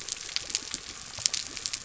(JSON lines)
{"label": "biophony", "recorder": "SoundTrap 300"}